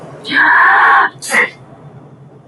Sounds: Sneeze